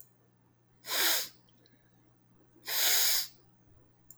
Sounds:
Sniff